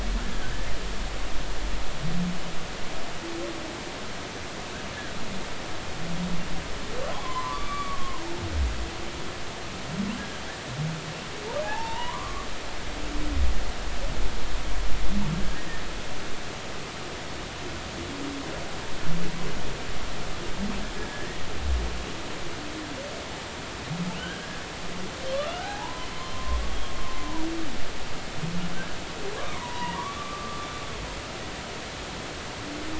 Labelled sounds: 7.1	8.2	humpback whale, 0.80 to 2.4 kHz
10.2	10.4	humpback whale, 1.5 to 1.8 kHz
11.6	12.5	humpback whale, 0.80 to 3.0 kHz
15.4	15.7	humpback whale, 1.6 to 1.7 kHz
21.0	21.5	humpback whale, 1.6 to 2.0 kHz
24.2	24.6	humpback whale, 1.4 to 1.7 kHz
25.5	26.6	humpback whale, 0.80 to 1.7 kHz
29.4	30.7	humpback whale, 0.86 to 3.0 kHz

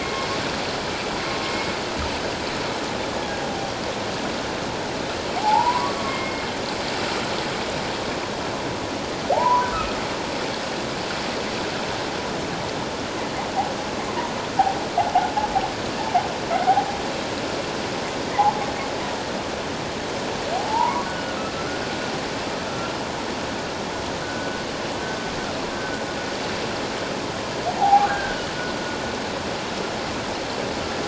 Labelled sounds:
0.0	0.3	humpback whale, 2.1 to 2.2 kHz
1.4	1.7	humpback whale, 2.1 to 2.2 kHz
5.4	6.4	humpback whale, 0.78 to 2.2 kHz
9.3	10.0	humpback whale, 0.78 to 1.6 kHz
20.5	21.4	humpback whale, 0.78 to 1.5 kHz
22.7	22.9	humpback whale, 1.3 to 1.4 kHz
24.2	24.6	humpback whale, 1.4 to 1.6 kHz
25.7	26.0	humpback whale, 1.4 to 1.6 kHz
27.7	28.4	humpback whale, 0.78 to 1.7 kHz

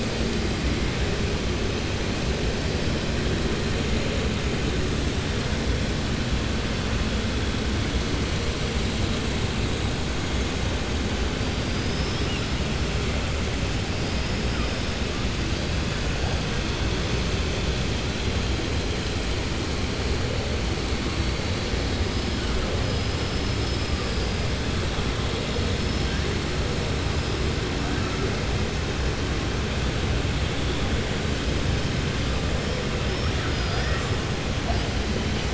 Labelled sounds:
23.2	24.4	killer whale, southern resident, 4.6 to 5.2 kHz
33.0	34.1	killer whale, southern resident, 0.70 to 5.8 kHz

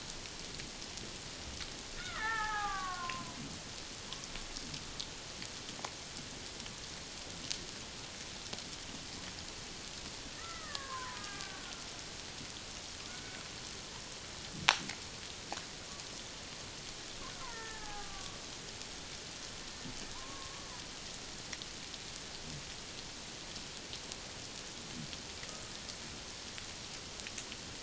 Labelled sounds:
2.0	3.4	killer whale, Bigg's (transient), 0.78 to 2.3 kHz
10.4	11.9	killer whale, Bigg's (transient), 0.88 to 2.1 kHz
13.1	13.4	killer whale, Bigg's (transient), 1.4 to 1.6 kHz
17.5	18.4	killer whale, Bigg's (transient), 0.78 to 1.9 kHz
20.1	20.7	killer whale, Bigg's (transient), 0.91 to 1.2 kHz

